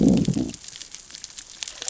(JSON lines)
{"label": "biophony, growl", "recorder": "SoundTrap 600 or HydroMoth"}